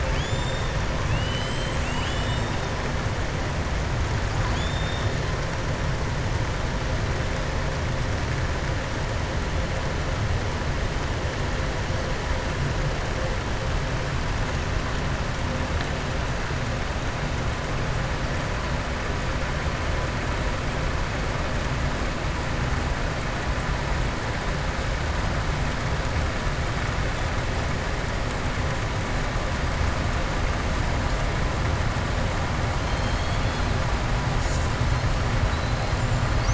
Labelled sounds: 0.0	0.7	killer whale, southern resident, 2.2 to 7.4 kHz
4.4	5.1	killer whale, southern resident, 2.5 to 7.3 kHz
32.8	33.7	killer whale, southern resident, 2.9 to 5.1 kHz

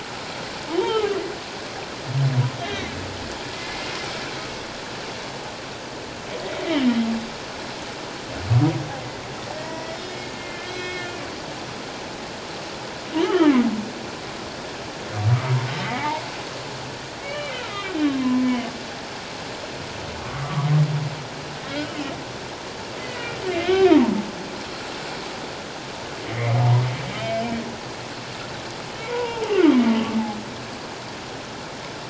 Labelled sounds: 0.7	1.2	humpback whale, 1.1 to 3.3 kHz
2.6	2.8	humpback whale, 3.1 to 3.4 kHz
3.5	4.0	humpback whale, 2.0 to 2.2 kHz
9.6	11.2	humpback whale, 1.7 to 5.2 kHz
13.2	13.6	humpback whale, 0.97 to 3.4 kHz
15.3	16.2	humpback whale, 0.78 to 2.2 kHz
17.2	18.7	humpback whale, 0.97 to 3.0 kHz
20.4	20.7	humpback whale, 1.1 to 1.3 kHz
23.0	24.2	humpback whale, 0.81 to 2.3 kHz
26.3	26.6	humpback whale, 1.8 to 2.4 kHz
29.0	29.5	humpback whale, 0.78 to 1.0 kHz

